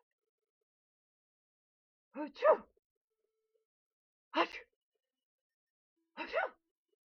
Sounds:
Sneeze